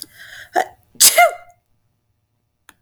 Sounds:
Sneeze